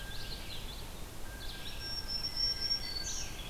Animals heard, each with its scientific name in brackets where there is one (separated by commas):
Blue Jay (Cyanocitta cristata), Black-throated Green Warbler (Setophaga virens), Red-eyed Vireo (Vireo olivaceus), Common Yellowthroat (Geothlypis trichas)